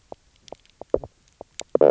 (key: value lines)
label: biophony, knock croak
recorder: SoundTrap 300